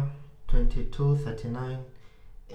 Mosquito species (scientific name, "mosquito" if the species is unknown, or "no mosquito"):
Anopheles arabiensis